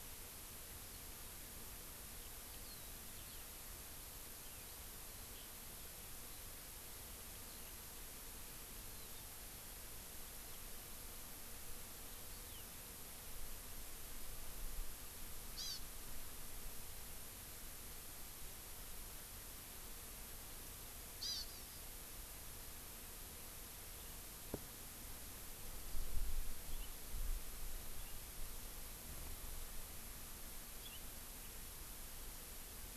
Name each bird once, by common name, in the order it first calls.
Eurasian Skylark, Hawaii Amakihi